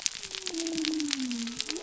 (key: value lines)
label: biophony
recorder: SoundTrap 300